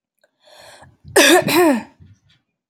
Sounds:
Throat clearing